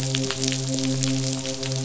{"label": "biophony, midshipman", "recorder": "SoundTrap 500"}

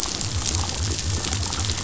{"label": "biophony", "recorder": "SoundTrap 500"}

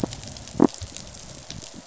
{"label": "biophony", "recorder": "SoundTrap 500"}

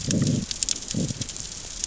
{"label": "biophony, growl", "recorder": "SoundTrap 600 or HydroMoth"}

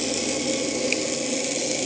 {"label": "anthrophony, boat engine", "recorder": "HydroMoth"}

